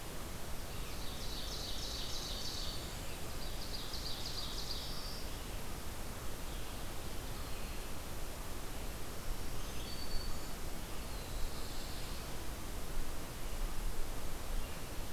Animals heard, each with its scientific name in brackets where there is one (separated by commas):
Black-and-white Warbler (Mniotilta varia), Ovenbird (Seiurus aurocapilla), Black-throated Blue Warbler (Setophaga caerulescens), Black-throated Green Warbler (Setophaga virens), Red-eyed Vireo (Vireo olivaceus)